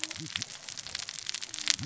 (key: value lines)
label: biophony, cascading saw
recorder: SoundTrap 600 or HydroMoth